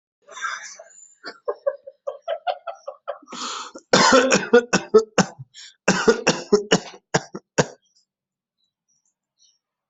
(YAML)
expert_labels:
- quality: poor
  cough_type: dry
  dyspnea: false
  wheezing: false
  stridor: false
  choking: false
  congestion: false
  nothing: true
  diagnosis: COVID-19
  severity: mild